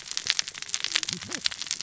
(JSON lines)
{"label": "biophony, cascading saw", "recorder": "SoundTrap 600 or HydroMoth"}